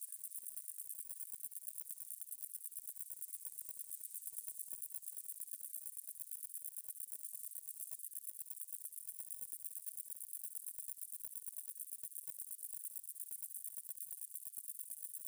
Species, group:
Stenobothrus lineatus
Orthoptera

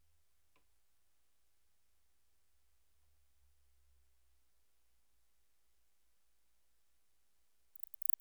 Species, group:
Barbitistes yersini
Orthoptera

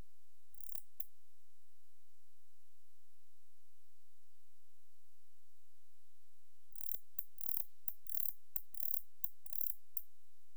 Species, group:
Barbitistes ocskayi
Orthoptera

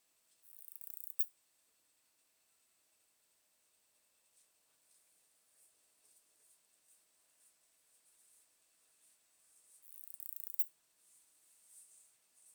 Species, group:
Poecilimon nobilis
Orthoptera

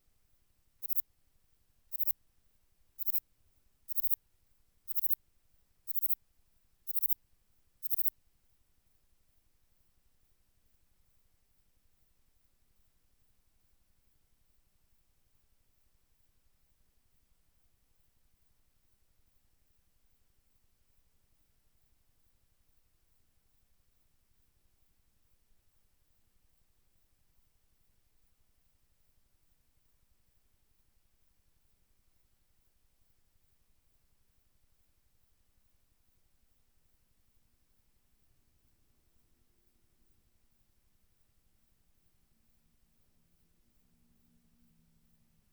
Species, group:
Platycleis grisea
Orthoptera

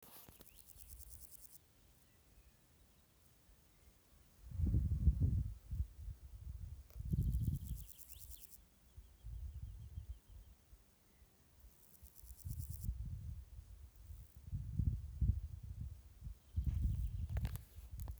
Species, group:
Pseudochorthippus parallelus
Orthoptera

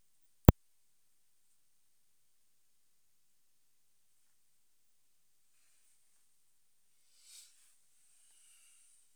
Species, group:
Poecilimon tessellatus
Orthoptera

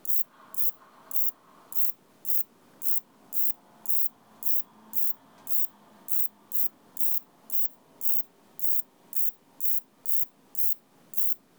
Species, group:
Pseudosubria bispinosa
Orthoptera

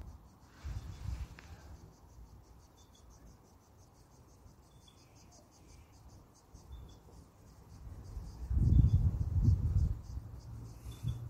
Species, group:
Popplepsalta aeroides
Cicadidae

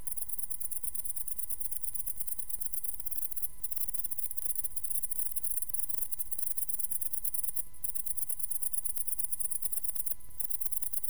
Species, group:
Tettigonia viridissima
Orthoptera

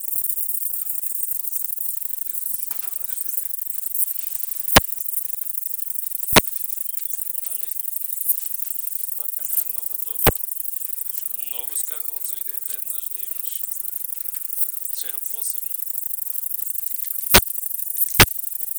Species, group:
Polysarcus denticauda
Orthoptera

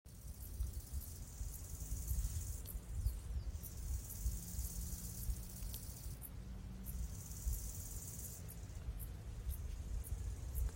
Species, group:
Chorthippus biguttulus
Orthoptera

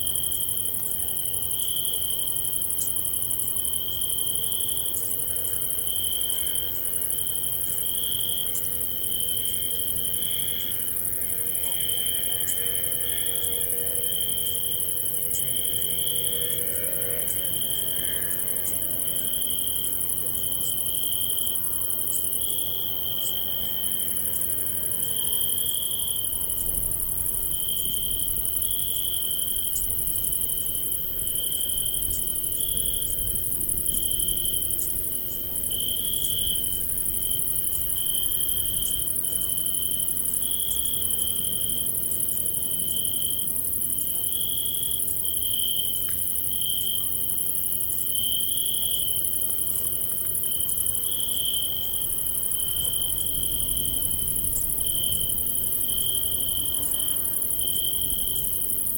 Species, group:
Oecanthus pellucens
Orthoptera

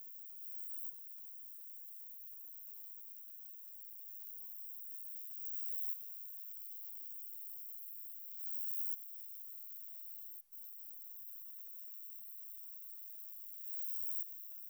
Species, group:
Roeseliana roeselii
Orthoptera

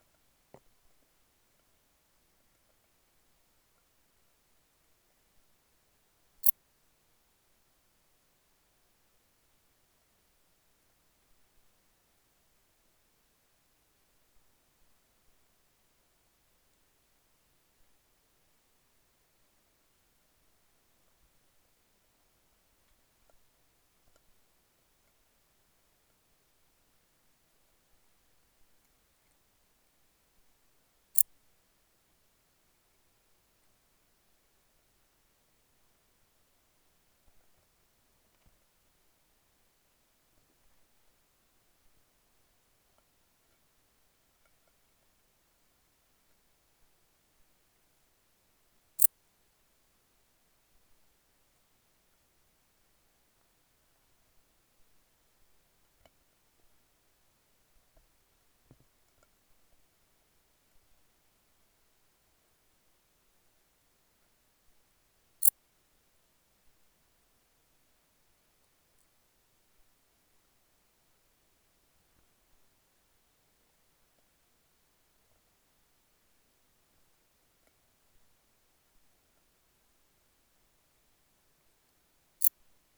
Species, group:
Pholidoptera griseoaptera
Orthoptera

